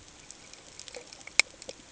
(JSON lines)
{"label": "ambient", "recorder": "HydroMoth"}